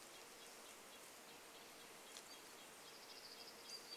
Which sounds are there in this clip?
Red-breasted Nuthatch song, insect buzz, unidentified bird chip note, Dark-eyed Junco song, warbler song